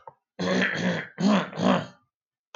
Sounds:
Throat clearing